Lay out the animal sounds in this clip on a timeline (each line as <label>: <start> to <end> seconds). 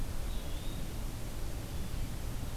Eastern Wood-Pewee (Contopus virens): 0.2 to 0.8 seconds